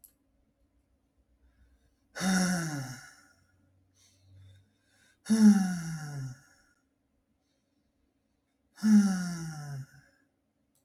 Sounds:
Sigh